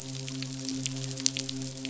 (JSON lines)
{"label": "biophony, midshipman", "recorder": "SoundTrap 500"}